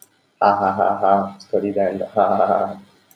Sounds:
Laughter